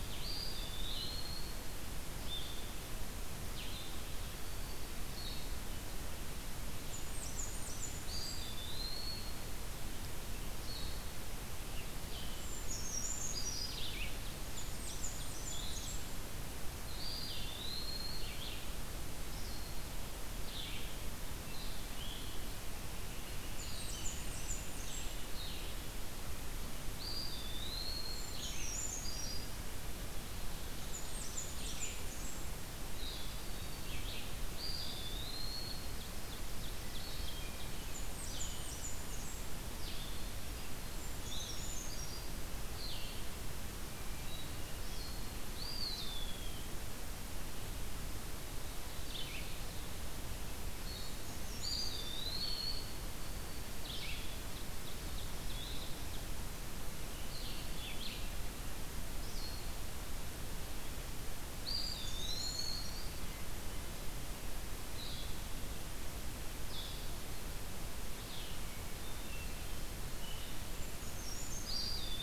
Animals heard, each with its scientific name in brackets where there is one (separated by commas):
Hermit Thrush (Catharus guttatus), Brown Creeper (Certhia americana), Northern Flicker (Colaptes auratus), Blackburnian Warbler (Setophaga fusca), Eastern Wood-Pewee (Contopus virens), Red-eyed Vireo (Vireo olivaceus), Blue-headed Vireo (Vireo solitarius), Ovenbird (Seiurus aurocapilla), Black-throated Green Warbler (Setophaga virens)